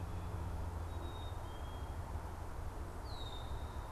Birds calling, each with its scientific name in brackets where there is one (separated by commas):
Red-winged Blackbird (Agelaius phoeniceus), Black-capped Chickadee (Poecile atricapillus)